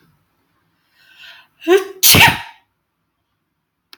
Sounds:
Sneeze